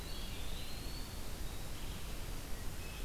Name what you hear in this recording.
Eastern Wood-Pewee, Red-eyed Vireo